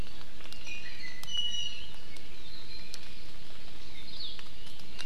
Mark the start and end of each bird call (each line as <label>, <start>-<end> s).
Iiwi (Drepanis coccinea), 0.4-2.1 s
Hawaii Akepa (Loxops coccineus), 4.0-4.5 s